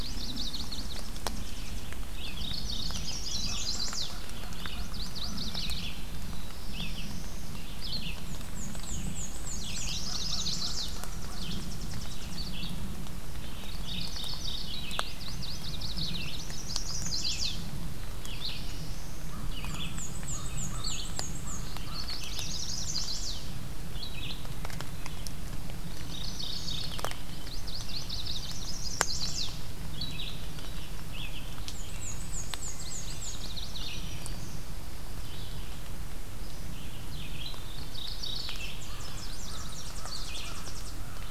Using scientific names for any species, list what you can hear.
Setophaga coronata, Leiothlypis peregrina, Vireo olivaceus, Geothlypis philadelphia, Setophaga pensylvanica, Corvus brachyrhynchos, Setophaga caerulescens, Mniotilta varia, Setophaga virens